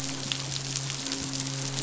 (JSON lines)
{"label": "biophony, midshipman", "recorder": "SoundTrap 500"}